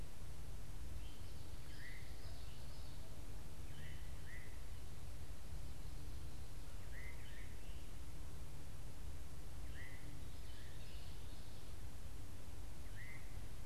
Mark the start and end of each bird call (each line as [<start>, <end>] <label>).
[0.50, 13.60] Veery (Catharus fuscescens)